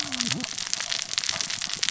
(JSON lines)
{"label": "biophony, cascading saw", "recorder": "SoundTrap 600 or HydroMoth"}